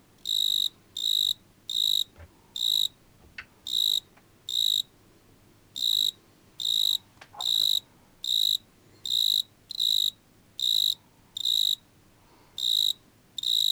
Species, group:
Eumodicogryllus bordigalensis
Orthoptera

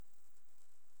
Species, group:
Conocephalus fuscus
Orthoptera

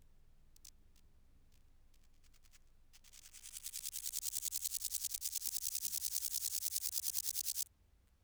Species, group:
Chorthippus binotatus
Orthoptera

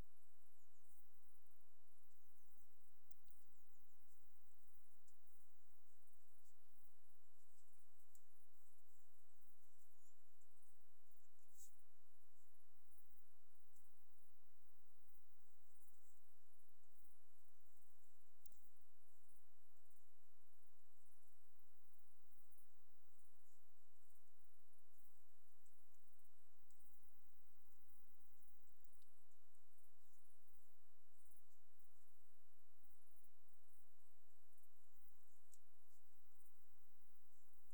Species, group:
Poecilimon jonicus
Orthoptera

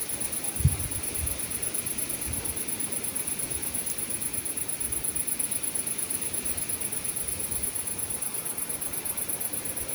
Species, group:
Tettigonia viridissima
Orthoptera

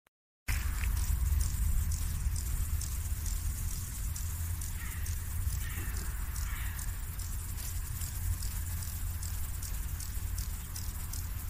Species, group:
Stauroderus scalaris
Orthoptera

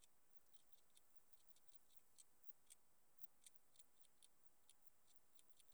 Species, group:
Tessellana tessellata
Orthoptera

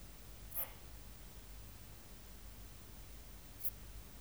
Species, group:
Eupholidoptera latens
Orthoptera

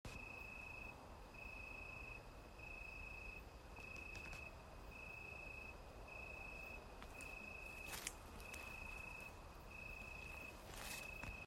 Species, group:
Oecanthus pellucens
Orthoptera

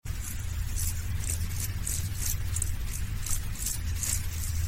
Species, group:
Chorthippus brunneus
Orthoptera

